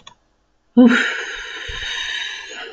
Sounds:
Sigh